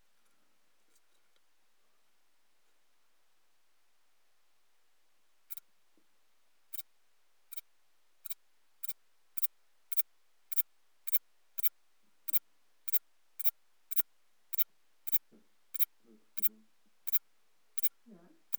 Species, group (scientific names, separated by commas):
Antaxius spinibrachius, Orthoptera